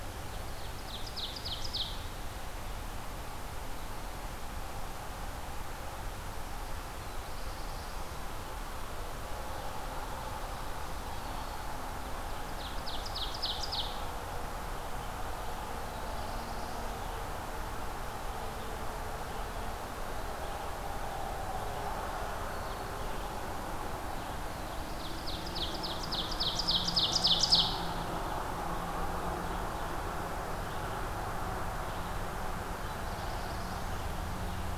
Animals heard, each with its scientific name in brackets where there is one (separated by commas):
Black-throated Blue Warbler (Setophaga caerulescens), Ovenbird (Seiurus aurocapilla), Red-eyed Vireo (Vireo olivaceus)